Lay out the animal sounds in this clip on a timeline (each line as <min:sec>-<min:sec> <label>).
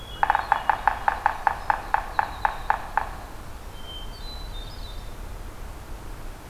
0:00.0-0:03.3 Yellow-bellied Sapsucker (Sphyrapicus varius)
0:03.6-0:05.1 Hermit Thrush (Catharus guttatus)